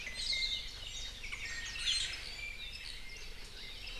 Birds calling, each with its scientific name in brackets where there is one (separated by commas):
Hawaii Akepa (Loxops coccineus), Iiwi (Drepanis coccinea)